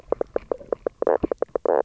{"label": "biophony, knock croak", "recorder": "SoundTrap 300"}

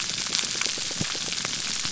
{"label": "biophony, pulse", "recorder": "SoundTrap 300"}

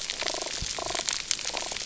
{"label": "biophony", "recorder": "SoundTrap 300"}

